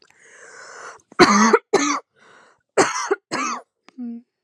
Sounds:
Cough